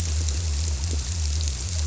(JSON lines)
{"label": "biophony", "recorder": "SoundTrap 300"}